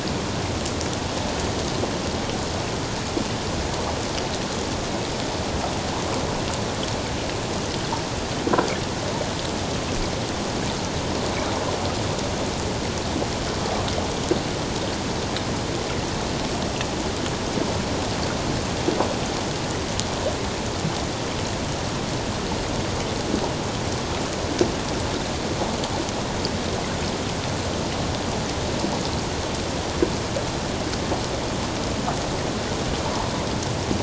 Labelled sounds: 33.0	33.3	water noise, 0.84 to 1.1 kHz

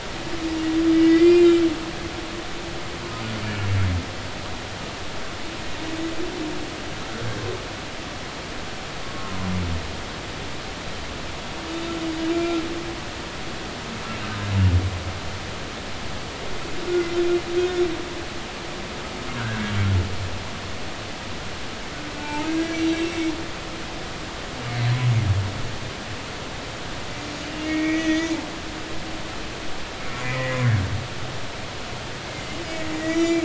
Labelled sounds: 0.9	1.6	humpback whale, 1.9 to 5.0 kHz
9.0	9.4	humpback whale, 1.0 to 1.1 kHz
12.3	12.6	humpback whale, 1.3 to 2.4 kHz
19.4	19.6	humpback whale, 1.3 to 1.7 kHz
22.2	22.8	humpback whale, 0.83 to 1.7 kHz
27.6	28.3	humpback whale, 1.8 to 6.2 kHz
30.2	30.6	humpback whale, 1.8 to 2.5 kHz
32.3	33.4	humpback whale, 1.9 to 5.8 kHz

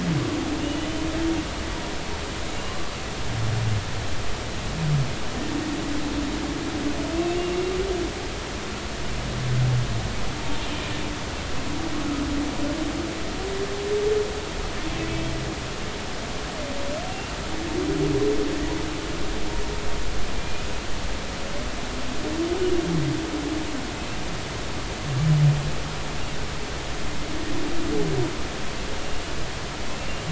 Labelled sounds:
0.6	0.9	humpback whale, 2.8 to 3.0 kHz
2.5	2.8	humpback whale, 2.8 to 2.9 kHz
17.1	17.3	humpback whale, 2.7 to 2.8 kHz
20.3	20.7	humpback whale, 2.3 to 2.6 kHz

